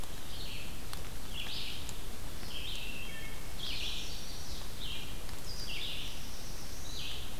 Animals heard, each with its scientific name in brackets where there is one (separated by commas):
Red-eyed Vireo (Vireo olivaceus), Chestnut-sided Warbler (Setophaga pensylvanica), Wood Thrush (Hylocichla mustelina), Black-throated Blue Warbler (Setophaga caerulescens)